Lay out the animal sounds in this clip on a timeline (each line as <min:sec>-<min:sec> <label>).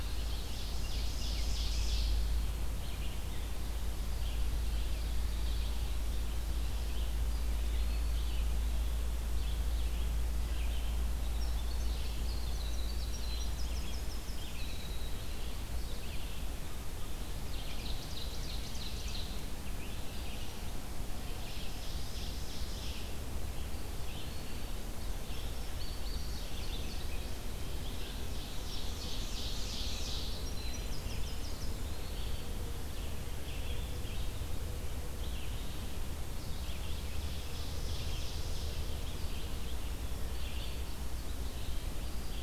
0:00.0-0:00.8 Indigo Bunting (Passerina cyanea)
0:00.0-0:02.2 Ovenbird (Seiurus aurocapilla)
0:00.0-0:07.1 Red-eyed Vireo (Vireo olivaceus)
0:07.3-0:08.5 Eastern Wood-Pewee (Contopus virens)
0:07.3-0:42.4 Red-eyed Vireo (Vireo olivaceus)
0:10.9-0:15.9 Winter Wren (Troglodytes hiemalis)
0:17.2-0:19.4 Ovenbird (Seiurus aurocapilla)
0:21.0-0:23.3 Ovenbird (Seiurus aurocapilla)
0:23.7-0:25.0 Eastern Wood-Pewee (Contopus virens)
0:25.1-0:27.3 Indigo Bunting (Passerina cyanea)
0:28.1-0:30.5 Ovenbird (Seiurus aurocapilla)
0:30.3-0:31.8 Winter Wren (Troglodytes hiemalis)
0:31.4-0:32.6 Eastern Wood-Pewee (Contopus virens)
0:36.4-0:39.0 Ovenbird (Seiurus aurocapilla)